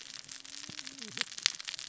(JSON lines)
{"label": "biophony, cascading saw", "recorder": "SoundTrap 600 or HydroMoth"}